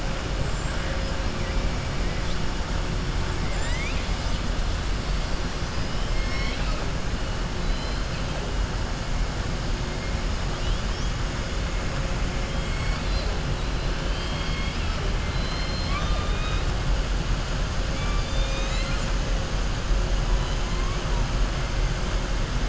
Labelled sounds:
6.0	6.8	killer whale, southern resident, 0.65 to 6.4 kHz
12.5	13.3	killer whale, southern resident, 2.1 to 5.5 kHz
14.0	16.7	killer whale, southern resident, 0.67 to 5.4 kHz
17.9	19.1	killer whale, southern resident, 1.3 to 7.9 kHz

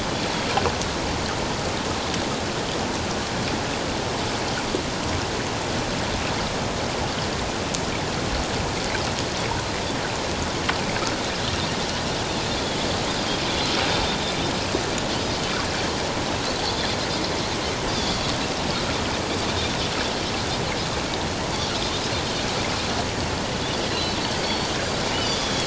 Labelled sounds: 16.7	17.0	Pacific white-sided dolphin, 3.3 to 3.7 kHz
17.9	18.2	Pacific white-sided dolphin, 4.5 to 4.8 kHz
23.9	24.7	Pacific white-sided dolphin, 3.9 to 4.6 kHz
25.2	25.6	Pacific white-sided dolphin, 3.3 to 7.1 kHz

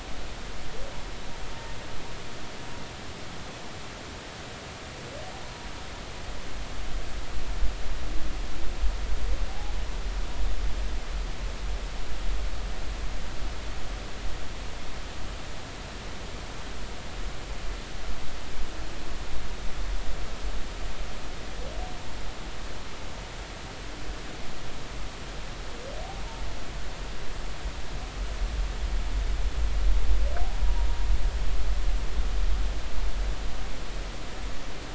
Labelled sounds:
9.5	9.7	humpback whale, 0.80 to 0.93 kHz
30.6	30.9	humpback whale, 0.90 to 0.99 kHz

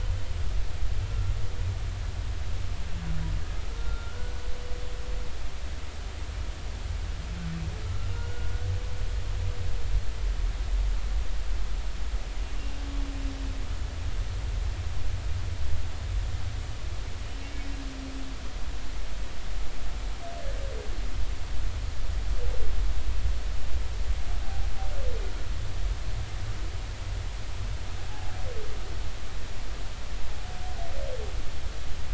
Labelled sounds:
3.7	4.4	humpback whale, 1.2 to 1.5 kHz
7.9	8.5	humpback whale, 1.3 to 1.5 kHz
12.6	12.8	humpback whale, 2.7 to 2.8 kHz
17.4	17.7	humpback whale, 2.2 to 2.3 kHz

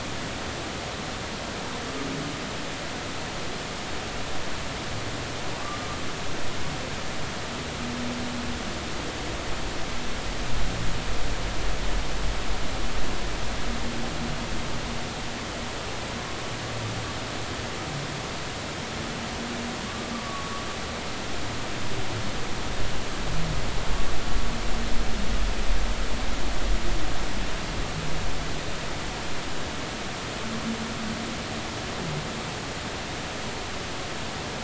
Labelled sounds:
5.6	5.9	humpback whale, 1.1 to 1.2 kHz
20.1	20.7	humpback whale, 1.1 to 1.3 kHz

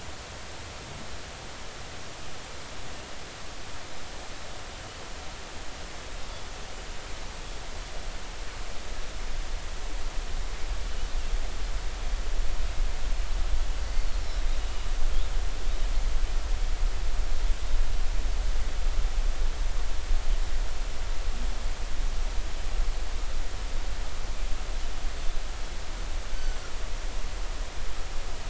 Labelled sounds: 13.9	14.1	Pacific white-sided dolphin, 4.3 to 4.6 kHz
26.4	26.6	Pacific white-sided dolphin, 5.9 to 6.2 kHz

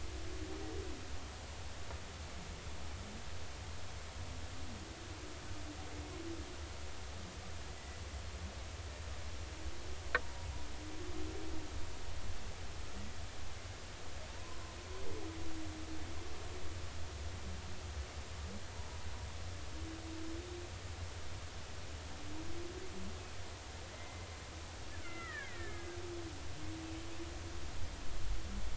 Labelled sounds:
10.2	10.5	humpback whale, 0.90 to 0.99 kHz
14.3	14.6	humpback whale, 0.86 to 1.1 kHz
23.9	24.3	killer whale, Bigg's (transient), 2.0 to 2.1 kHz
24.9	25.9	killer whale, Bigg's (transient), 1.1 to 2.5 kHz

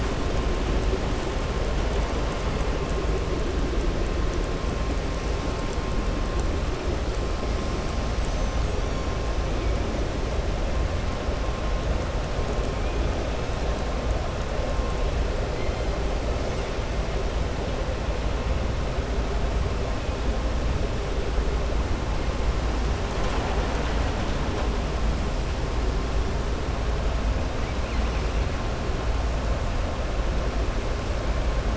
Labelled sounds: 8.1	9.1	killer whale, southern resident, 5.8 to 7.8 kHz

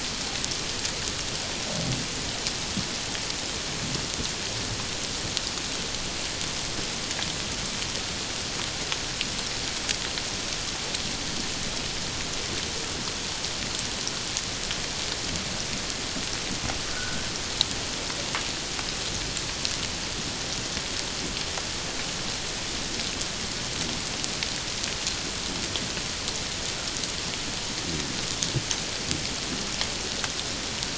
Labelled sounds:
16.9	17.2	humpback whale, 1.3 to 1.6 kHz

